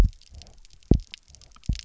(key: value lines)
label: biophony, double pulse
recorder: SoundTrap 300